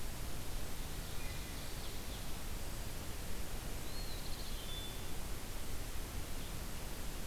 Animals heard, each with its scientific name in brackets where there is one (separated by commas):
Wood Thrush (Hylocichla mustelina), Ovenbird (Seiurus aurocapilla), Eastern Wood-Pewee (Contopus virens)